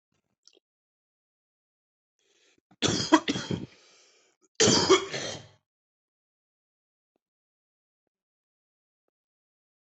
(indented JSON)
{
  "expert_labels": [
    {
      "quality": "good",
      "cough_type": "wet",
      "dyspnea": false,
      "wheezing": false,
      "stridor": false,
      "choking": false,
      "congestion": false,
      "nothing": true,
      "diagnosis": "lower respiratory tract infection",
      "severity": "mild"
    }
  ],
  "age": 35,
  "gender": "male",
  "respiratory_condition": false,
  "fever_muscle_pain": false,
  "status": "symptomatic"
}